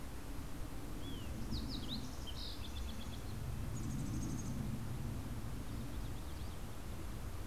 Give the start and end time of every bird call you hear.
[1.00, 3.40] Fox Sparrow (Passerella iliaca)
[3.30, 5.00] Mountain Chickadee (Poecile gambeli)

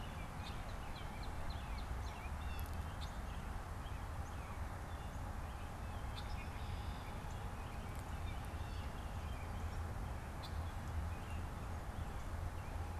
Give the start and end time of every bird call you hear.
[0.20, 2.50] Northern Cardinal (Cardinalis cardinalis)
[2.40, 2.70] Blue Jay (Cyanocitta cristata)
[4.90, 9.80] American Robin (Turdus migratorius)

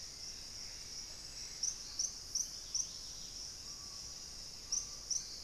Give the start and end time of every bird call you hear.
[0.00, 1.94] Gray Antbird (Cercomacra cinerascens)
[0.00, 2.04] Thrush-like Wren (Campylorhynchus turdinus)
[0.00, 5.44] Dusky-capped Greenlet (Pachysylvia hypoxantha)
[1.84, 5.34] Screaming Piha (Lipaugus vociferans)

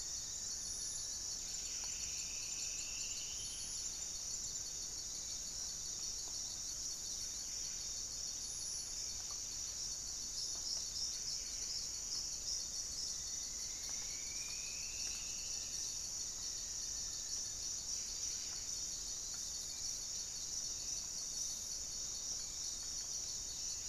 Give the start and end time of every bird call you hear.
[0.00, 1.76] Black-faced Antthrush (Formicarius analis)
[0.00, 23.89] Buff-breasted Wren (Cantorchilus leucotis)
[1.26, 3.86] Striped Woodcreeper (Xiphorhynchus obsoletus)
[13.26, 15.96] Striped Woodcreeper (Xiphorhynchus obsoletus)
[15.46, 17.46] Black-faced Antthrush (Formicarius analis)
[19.56, 23.89] unidentified bird

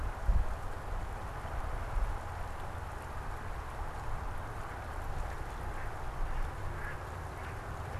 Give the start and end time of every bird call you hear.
[5.53, 7.99] Mallard (Anas platyrhynchos)

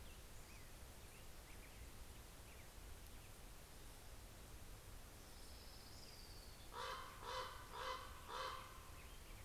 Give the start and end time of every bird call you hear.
[4.66, 6.96] Orange-crowned Warbler (Leiothlypis celata)
[6.46, 9.36] Common Raven (Corvus corax)

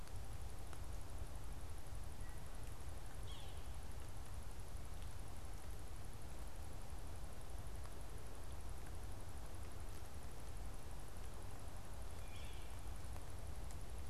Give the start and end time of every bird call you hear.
[2.05, 2.95] Wood Thrush (Hylocichla mustelina)
[3.15, 3.75] Yellow-bellied Sapsucker (Sphyrapicus varius)
[11.95, 12.75] Yellow-bellied Sapsucker (Sphyrapicus varius)

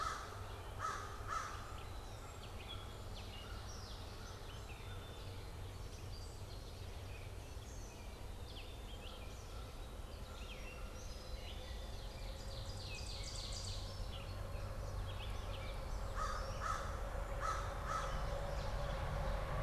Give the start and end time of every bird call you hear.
[0.00, 1.64] American Crow (Corvus brachyrhynchos)
[0.00, 19.63] Gray Catbird (Dumetella carolinensis)
[11.54, 14.04] Ovenbird (Seiurus aurocapilla)
[16.04, 18.34] American Crow (Corvus brachyrhynchos)

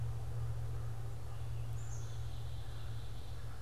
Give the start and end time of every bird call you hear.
[0.00, 3.62] American Crow (Corvus brachyrhynchos)
[1.21, 3.51] Black-capped Chickadee (Poecile atricapillus)

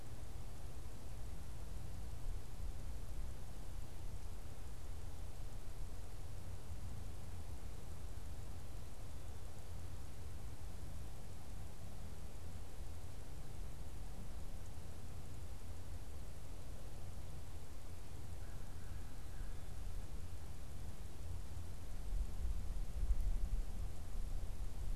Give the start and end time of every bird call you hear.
[18.28, 19.78] American Crow (Corvus brachyrhynchos)

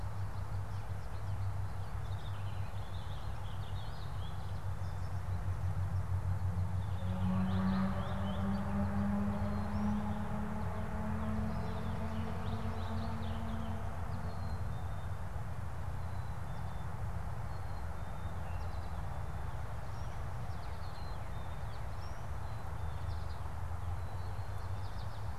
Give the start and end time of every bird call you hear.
[0.00, 14.18] Purple Finch (Haemorhous purpureus)
[14.18, 24.38] Black-capped Chickadee (Poecile atricapillus)
[18.38, 25.38] American Goldfinch (Spinus tristis)

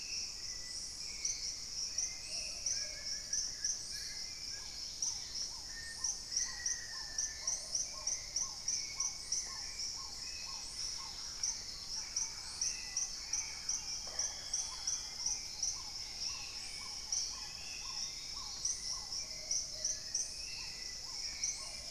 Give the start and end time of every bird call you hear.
[0.00, 8.49] Plumbeous Pigeon (Patagioenas plumbea)
[0.00, 21.91] Hauxwell's Thrush (Turdus hauxwelli)
[0.00, 21.91] Paradise Tanager (Tangara chilensis)
[0.00, 21.91] Spot-winged Antshrike (Pygiptila stellaris)
[2.59, 4.69] Wing-barred Piprites (Piprites chloris)
[3.69, 21.91] Black-tailed Trogon (Trogon melanurus)
[4.49, 5.59] Dusky-capped Greenlet (Pachysylvia hypoxantha)
[5.59, 7.69] Black-faced Antthrush (Formicarius analis)
[10.29, 11.39] Dusky-capped Greenlet (Pachysylvia hypoxantha)
[10.49, 15.29] Thrush-like Wren (Campylorhynchus turdinus)
[13.79, 14.39] Red-necked Woodpecker (Campephilus rubricollis)
[15.79, 19.19] Dusky-throated Antshrike (Thamnomanes ardesiacus)
[15.89, 16.99] Dusky-capped Greenlet (Pachysylvia hypoxantha)
[19.09, 21.91] Plumbeous Pigeon (Patagioenas plumbea)

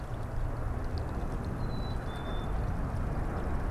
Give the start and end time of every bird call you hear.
[1.22, 2.62] Black-capped Chickadee (Poecile atricapillus)

